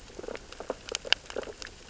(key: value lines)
label: biophony, sea urchins (Echinidae)
recorder: SoundTrap 600 or HydroMoth